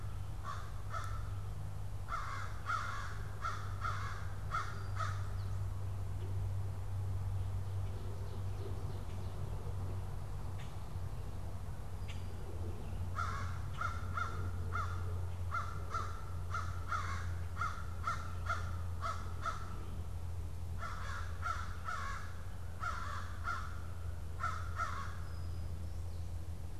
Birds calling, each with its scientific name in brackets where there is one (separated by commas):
American Crow (Corvus brachyrhynchos), Common Grackle (Quiscalus quiscula)